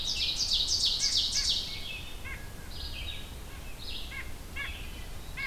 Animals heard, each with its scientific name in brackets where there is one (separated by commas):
Red-eyed Vireo (Vireo olivaceus), White-breasted Nuthatch (Sitta carolinensis), Ovenbird (Seiurus aurocapilla), Blue Jay (Cyanocitta cristata)